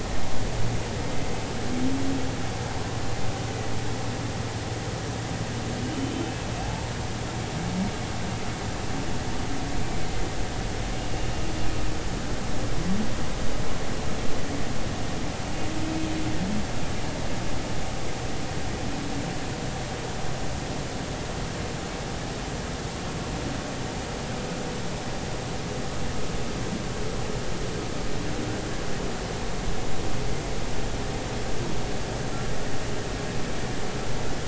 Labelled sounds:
5.9	6.9	humpback whale, 0.80 to 3.1 kHz
9.8	10.1	humpback whale, 2.2 to 2.4 kHz

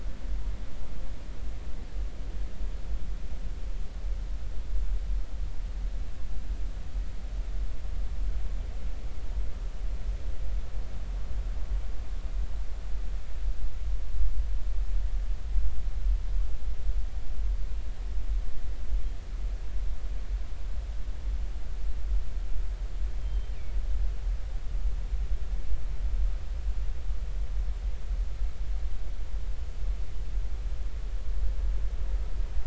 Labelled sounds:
23.2	23.5	killer whale, northern resident, G clan, GG subclan, call N23ii, 3.1 to 3.2 kHz

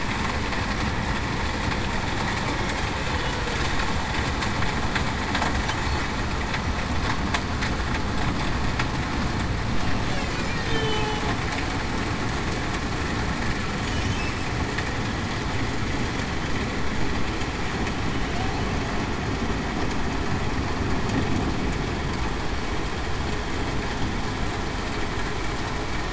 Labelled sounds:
10.6	11.2	humpback whale, 2.9 to 3.2 kHz

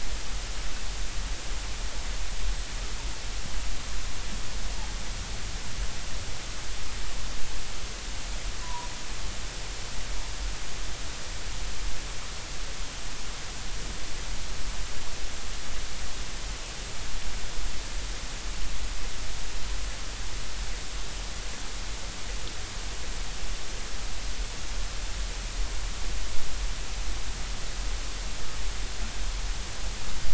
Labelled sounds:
8.6	8.9	humpback whale, 0.90 to 1.1 kHz

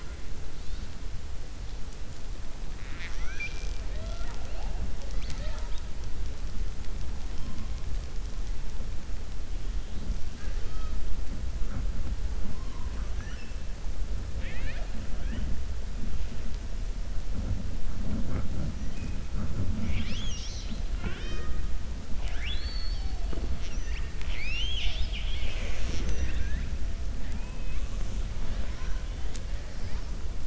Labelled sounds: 14.3	14.9	killer whale, 0.64 to 4.5 kHz
22.1	23.1	killer whale, 0.73 to 5.4 kHz

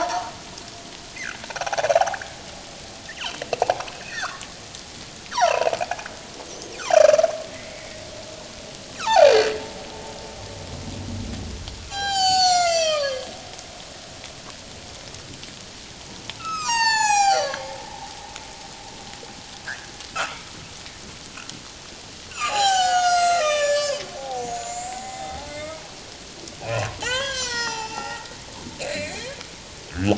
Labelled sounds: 0.0	0.3	humpback whale, 0.88 to 1.2 kHz
1.5	2.2	humpback whale, 0.78 to 0.97 kHz
3.1	3.4	humpback whale, 2.4 to 3.2 kHz
3.9	4.5	humpback whale, 0.97 to 3.7 kHz
5.3	5.7	humpback whale, 0.78 to 5.9 kHz
6.8	8.0	humpback whale, 1.8 to 7.5 kHz
9.0	9.5	humpback whale, 0.78 to 4.7 kHz
11.9	13.3	humpback whale, 0.78 to 8.0 kHz
16.4	17.8	humpback whale, 0.78 to 8.0 kHz
19.7	20.4	humpback whale, 1.2 to 2.0 kHz
22.3	25.9	humpback whale, 0.78 to 8.0 kHz
26.6	28.3	humpback whale, 0.78 to 6.3 kHz
28.8	29.2	humpback whale, 2.0 to 4.3 kHz

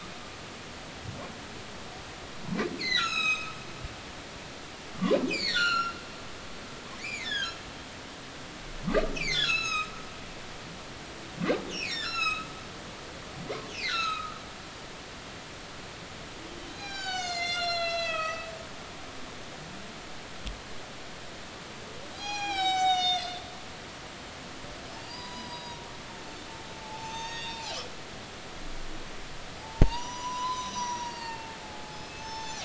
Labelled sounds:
2.8	3.5	humpback whale, 1.2 to 8.0 kHz
5.0	6.0	humpback whale, 0.99 to 7.3 kHz
7.0	7.6	humpback whale, 1.3 to 3.7 kHz
9.1	10.1	humpback whale, 1.0 to 8.0 kHz
11.7	12.5	humpback whale, 2.0 to 8.0 kHz
12.9	14.3	humpback whale, 1.2 to 6.8 kHz
14.9	15.4	humpback whale, 1.2 to 1.9 kHz
16.7	19.5	humpback whale, 0.80 to 8.0 kHz
22.1	23.4	humpback whale, 0.80 to 8.0 kHz
25.0	25.8	humpback whale, 0.90 to 5.1 kHz
26.8	27.7	humpback whale, 0.80 to 7.4 kHz
29.6	32.6	humpback whale, 0.80 to 8.0 kHz

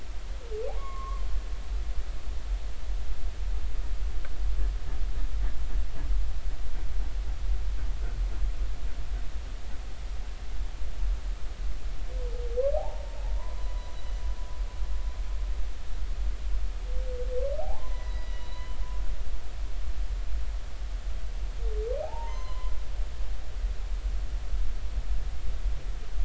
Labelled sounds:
0.8	1.2	humpback whale, 0.99 to 1.2 kHz
12.7	13.9	humpback whale, 0.80 to 1.1 kHz
17.6	18.8	humpback whale, 0.80 to 6.1 kHz
22.0	22.7	humpback whale, 0.80 to 6.2 kHz

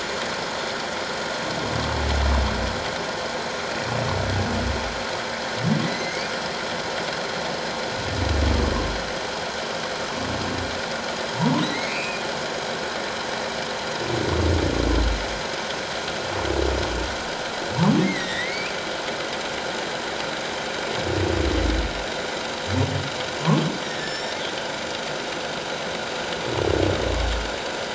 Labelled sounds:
5.8	6.3	humpback whale, 1.9 to 2.5 kHz
11.4	12.2	humpback whale, 0.84 to 2.8 kHz
17.8	18.7	humpback whale, 0.84 to 5.8 kHz
23.8	24.4	humpback whale, 1.6 to 7.4 kHz

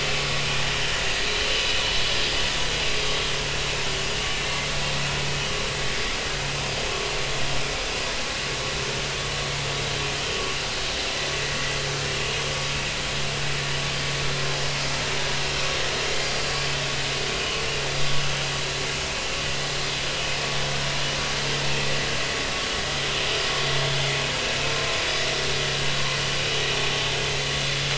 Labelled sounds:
4.4	4.7	vessel noise, 2.0 to 2.2 kHz
16.2	16.5	vessel noise, 4.6 to 4.9 kHz

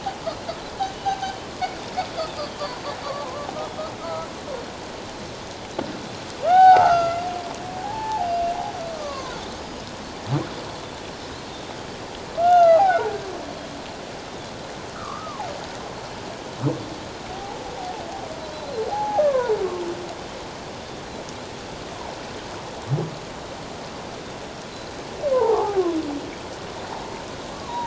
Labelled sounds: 1.1	1.3	humpback whale, 0.78 to 0.88 kHz
4.0	4.3	humpback whale, 1.2 to 1.4 kHz
6.4	8.3	humpback whale, 0.78 to 6.5 kHz
8.9	9.8	Pacific white-sided dolphin, 0.97 to 5.1 kHz
11.1	11.4	humpback whale, 4.9 to 5.4 kHz
12.4	13.1	humpback whale, 0.78 to 3.0 kHz
14.9	15.4	humpback whale, 0.94 to 1.5 kHz
17.3	18.0	humpback whale, 0.78 to 0.97 kHz
18.9	19.5	humpback whale, 0.78 to 1.2 kHz
25.3	25.8	humpback whale, 0.78 to 1.3 kHz

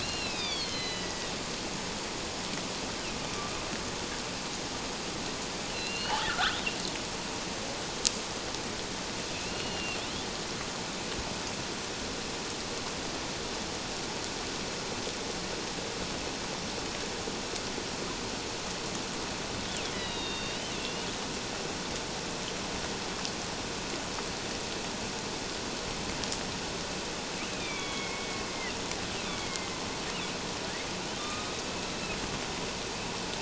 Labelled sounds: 0.0	1.3	killer whale, northern resident, A clan, AA subclan, call N04, 1.8 to 5.2 kHz
5.7	6.6	killer whale, northern resident, A clan, AA subclan, 1.1 to 4.4 kHz
9.3	10.0	killer whale, northern resident, A clan, AA subclan, 2.5 to 4.3 kHz
19.9	21.1	killer whale, northern resident, A clan, AA subclan, 2.7 to 5.0 kHz
27.5	28.5	killer whale, northern resident, A clan, AA subclan, 2.1 to 3.7 kHz
29.3	29.7	killer whale, northern resident, A clan, AA subclan, 2.0 to 2.4 kHz
31.2	31.6	killer whale, northern resident, A clan, AA subclan, 1.1 to 1.3 kHz

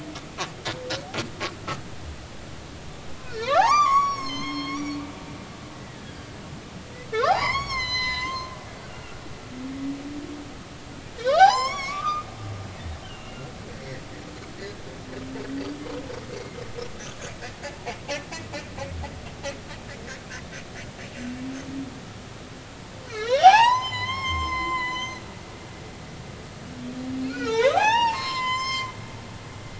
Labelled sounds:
3.2	5.0	humpback whale, 0.80 to 7.2 kHz
5.7	6.4	humpback whale, 1.6 to 4.9 kHz
7.2	9.2	humpback whale, 0.80 to 7.6 kHz
11.2	12.3	humpback whale, 0.80 to 7.5 kHz
13.0	13.5	humpback whale, 2.7 to 3.2 kHz
16.3	16.6	humpback whale, 2.0 to 4.3 kHz
23.1	25.2	humpback whale, 0.80 to 7.5 kHz
27.2	28.9	humpback whale, 0.80 to 8.0 kHz

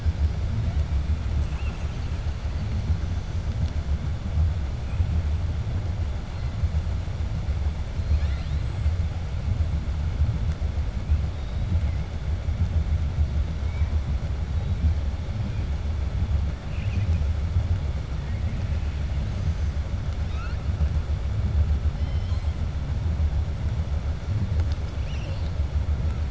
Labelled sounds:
8.0	8.7	killer whale, 1.4 to 6.6 kHz
18.1	18.5	killer whale, 0.93 to 2.6 kHz

